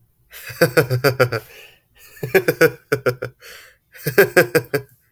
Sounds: Laughter